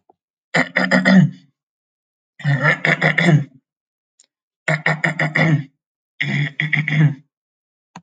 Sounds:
Throat clearing